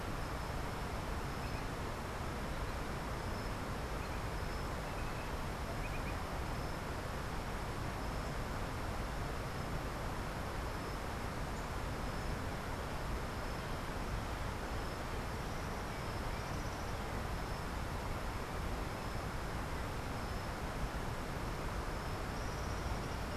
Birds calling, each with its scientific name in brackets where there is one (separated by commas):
Tropical Kingbird (Tyrannus melancholicus), Green Jay (Cyanocorax yncas)